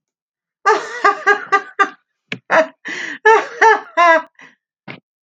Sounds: Laughter